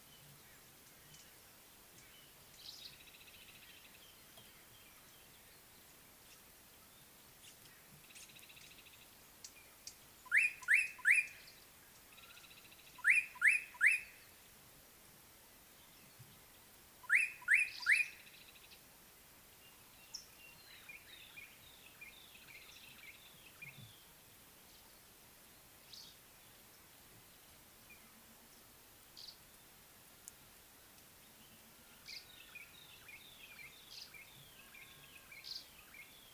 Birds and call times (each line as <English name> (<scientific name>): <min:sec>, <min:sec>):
Slate-colored Boubou (Laniarius funebris): 0:13.4
African Thrush (Turdus pelios): 0:18.5
White-browed Robin-Chat (Cossypha heuglini): 0:33.1